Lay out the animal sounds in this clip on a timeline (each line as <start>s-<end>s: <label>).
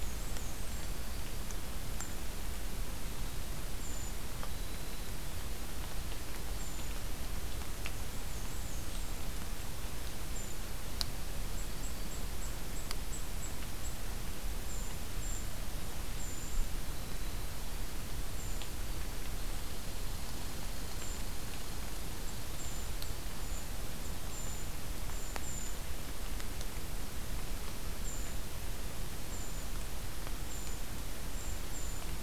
0.0s-1.0s: Black-and-white Warbler (Mniotilta varia)
0.0s-10.6s: Brown Creeper (Certhia americana)
7.9s-9.2s: Black-and-white Warbler (Mniotilta varia)
11.5s-25.9s: Brown Creeper (Certhia americana)
19.3s-23.1s: Red Squirrel (Tamiasciurus hudsonicus)
28.0s-32.2s: Brown Creeper (Certhia americana)